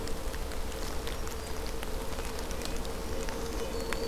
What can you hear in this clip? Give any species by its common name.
Red-breasted Nuthatch, Black-throated Green Warbler